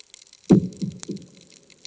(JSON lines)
{"label": "anthrophony, bomb", "recorder": "HydroMoth"}